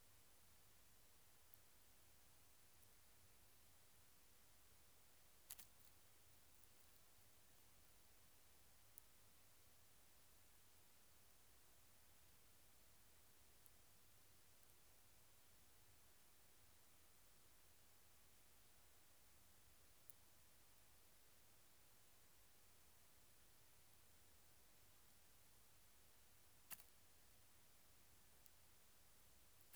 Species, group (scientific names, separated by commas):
Chorthippus biguttulus, Orthoptera